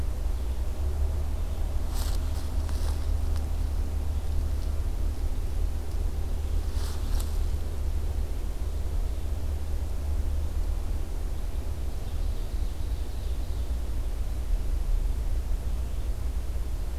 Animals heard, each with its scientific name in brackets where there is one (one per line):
Ovenbird (Seiurus aurocapilla)